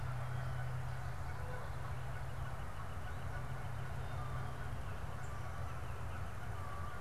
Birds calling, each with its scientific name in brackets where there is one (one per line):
Canada Goose (Branta canadensis)